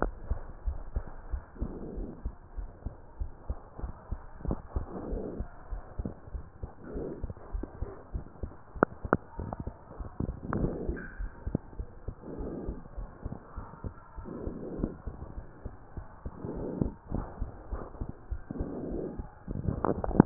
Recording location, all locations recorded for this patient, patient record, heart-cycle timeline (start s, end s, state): pulmonary valve (PV)
aortic valve (AV)+pulmonary valve (PV)+tricuspid valve (TV)+mitral valve (MV)
#Age: Child
#Sex: Female
#Height: 133.0 cm
#Weight: 47.7 kg
#Pregnancy status: False
#Murmur: Absent
#Murmur locations: nan
#Most audible location: nan
#Systolic murmur timing: nan
#Systolic murmur shape: nan
#Systolic murmur grading: nan
#Systolic murmur pitch: nan
#Systolic murmur quality: nan
#Diastolic murmur timing: nan
#Diastolic murmur shape: nan
#Diastolic murmur grading: nan
#Diastolic murmur pitch: nan
#Diastolic murmur quality: nan
#Outcome: Normal
#Campaign: 2015 screening campaign
0.00	0.14	unannotated
0.14	0.28	systole
0.28	0.42	S2
0.42	0.66	diastole
0.66	0.80	S1
0.80	0.94	systole
0.94	1.06	S2
1.06	1.28	diastole
1.28	1.42	S1
1.42	1.58	systole
1.58	1.72	S2
1.72	1.94	diastole
1.94	2.08	S1
2.08	2.22	systole
2.22	2.34	S2
2.34	2.56	diastole
2.56	2.68	S1
2.68	2.84	systole
2.84	2.96	S2
2.96	3.16	diastole
3.16	3.30	S1
3.30	3.46	systole
3.46	3.58	S2
3.58	3.80	diastole
3.80	3.94	S1
3.94	4.10	systole
4.10	4.22	S2
4.22	4.44	diastole
4.44	4.60	S1
4.60	4.74	systole
4.74	4.88	S2
4.88	5.08	diastole
5.08	5.24	S1
5.24	5.38	systole
5.38	5.48	S2
5.48	5.70	diastole
5.70	5.82	S1
5.82	5.96	systole
5.96	6.10	S2
6.10	6.32	diastole
6.32	6.44	S1
6.44	6.60	systole
6.60	6.70	S2
6.70	6.94	diastole
6.94	7.06	S1
7.06	7.20	systole
7.20	7.28	S2
7.28	7.50	diastole
7.50	7.64	S1
7.64	7.79	systole
7.79	7.90	S2
7.90	8.11	diastole
8.11	8.24	S1
8.24	8.40	systole
8.40	8.52	S2
8.52	8.73	diastole
8.73	20.26	unannotated